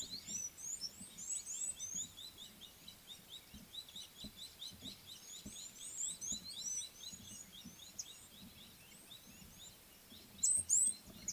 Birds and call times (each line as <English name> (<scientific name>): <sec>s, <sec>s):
Red-cheeked Cordonbleu (Uraeginthus bengalus): 1.3s
Gabar Goshawk (Micronisus gabar): 4.6s, 9.2s